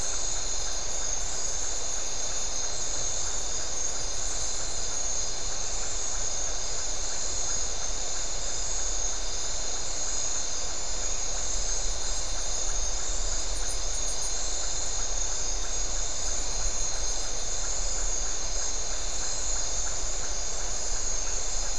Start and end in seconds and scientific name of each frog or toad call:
0.0	21.5	Leptodactylus notoaktites